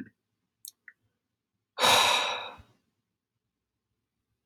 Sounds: Sigh